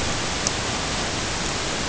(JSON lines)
{"label": "ambient", "recorder": "HydroMoth"}